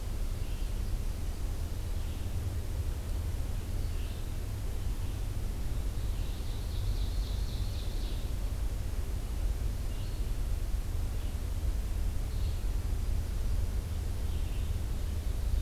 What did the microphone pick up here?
Red-eyed Vireo, American Goldfinch, Ovenbird